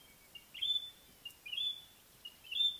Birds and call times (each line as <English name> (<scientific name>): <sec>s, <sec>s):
White-browed Robin-Chat (Cossypha heuglini): 1.6s